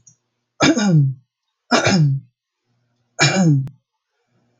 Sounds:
Throat clearing